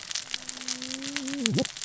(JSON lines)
{"label": "biophony, cascading saw", "recorder": "SoundTrap 600 or HydroMoth"}